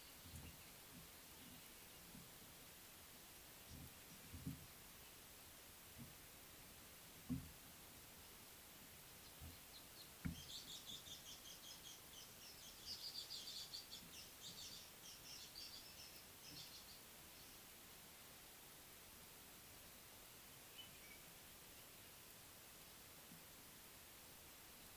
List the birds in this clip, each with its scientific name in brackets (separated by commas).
Speckled Mousebird (Colius striatus)